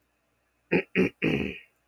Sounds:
Throat clearing